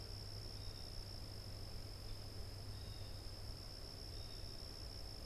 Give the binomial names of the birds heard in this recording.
Cyanocitta cristata